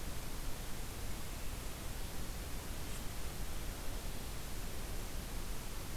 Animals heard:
forest ambience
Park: Katahdin Woods and Waters National Monument